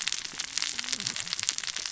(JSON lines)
{"label": "biophony, cascading saw", "recorder": "SoundTrap 600 or HydroMoth"}